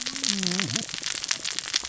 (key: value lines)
label: biophony, cascading saw
recorder: SoundTrap 600 or HydroMoth